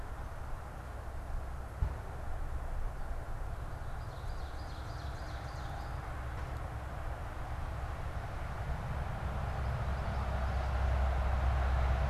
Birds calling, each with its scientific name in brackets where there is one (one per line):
Common Yellowthroat (Geothlypis trichas)
Ovenbird (Seiurus aurocapilla)